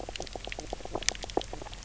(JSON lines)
{"label": "biophony, knock croak", "recorder": "SoundTrap 300"}